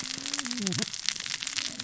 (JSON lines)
{"label": "biophony, cascading saw", "recorder": "SoundTrap 600 or HydroMoth"}